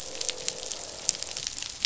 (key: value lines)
label: biophony, croak
recorder: SoundTrap 500